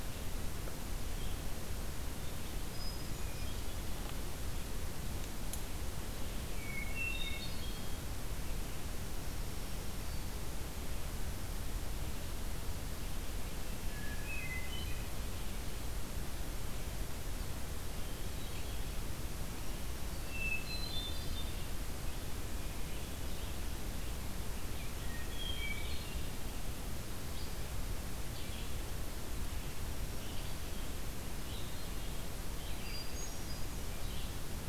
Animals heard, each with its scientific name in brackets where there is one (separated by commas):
Hermit Thrush (Catharus guttatus), Red-eyed Vireo (Vireo olivaceus), Black-throated Green Warbler (Setophaga virens)